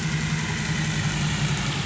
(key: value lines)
label: anthrophony, boat engine
recorder: SoundTrap 500